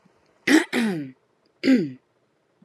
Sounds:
Throat clearing